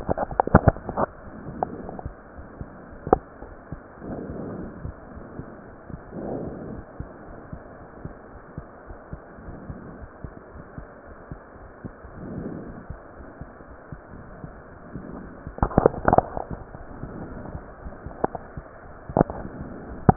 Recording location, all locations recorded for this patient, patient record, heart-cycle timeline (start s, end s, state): aortic valve (AV)
aortic valve (AV)+pulmonary valve (PV)+tricuspid valve (TV)+mitral valve (MV)
#Age: Child
#Sex: Male
#Height: 125.0 cm
#Weight: 28.3 kg
#Pregnancy status: False
#Murmur: Absent
#Murmur locations: nan
#Most audible location: nan
#Systolic murmur timing: nan
#Systolic murmur shape: nan
#Systolic murmur grading: nan
#Systolic murmur pitch: nan
#Systolic murmur quality: nan
#Diastolic murmur timing: nan
#Diastolic murmur shape: nan
#Diastolic murmur grading: nan
#Diastolic murmur pitch: nan
#Diastolic murmur quality: nan
#Outcome: Normal
#Campaign: 2015 screening campaign
0.00	4.28	unannotated
4.28	4.40	S2
4.40	4.56	diastole
4.56	4.72	S1
4.72	4.80	systole
4.80	4.94	S2
4.94	5.14	diastole
5.14	5.26	S1
5.26	5.34	systole
5.34	5.46	S2
5.46	5.68	diastole
5.68	5.76	S1
5.76	5.90	systole
5.90	5.98	S2
5.98	6.16	diastole
6.16	6.34	S1
6.34	6.40	systole
6.40	6.54	S2
6.54	6.68	diastole
6.68	6.84	S1
6.84	6.96	systole
6.96	7.08	S2
7.08	7.28	diastole
7.28	7.36	S1
7.36	7.48	systole
7.48	7.60	S2
7.60	7.82	diastole
7.82	7.88	S1
7.88	8.04	systole
8.04	8.14	S2
8.14	8.34	diastole
8.34	8.40	S1
8.40	8.52	systole
8.52	8.64	S2
8.64	8.86	diastole
8.86	8.96	S1
8.96	9.12	systole
9.12	9.22	S2
9.22	9.44	diastole
9.44	9.58	S1
9.58	9.66	systole
9.66	9.80	S2
9.80	10.02	diastole
10.02	10.08	S1
10.08	10.24	systole
10.24	10.34	S2
10.34	10.56	diastole
10.56	10.64	S1
10.64	10.78	systole
10.78	10.88	S2
10.88	11.06	diastole
11.06	11.20	S1
11.20	11.32	systole
11.32	11.38	S2
11.38	11.62	diastole
11.62	11.70	S1
11.70	11.84	systole
11.84	11.94	S2
11.94	12.16	diastole
12.16	12.27	S1
12.27	12.34	systole
12.34	12.48	S2
12.48	12.64	diastole
12.64	12.76	S1
12.76	12.86	systole
12.86	13.00	S2
13.00	13.17	diastole
13.17	13.27	S1
13.27	13.37	systole
13.37	13.48	S2
13.48	13.66	diastole
13.66	13.78	S1
13.78	13.89	systole
13.89	14.03	S2
14.03	14.27	diastole
14.27	20.16	unannotated